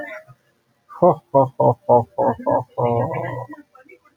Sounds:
Laughter